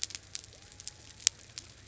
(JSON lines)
{"label": "biophony", "recorder": "SoundTrap 300"}